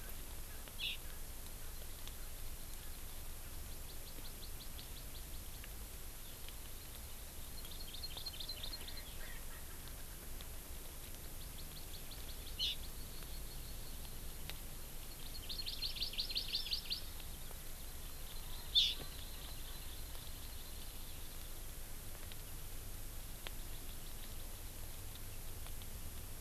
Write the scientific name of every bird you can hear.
Chlorodrepanis virens, Pternistis erckelii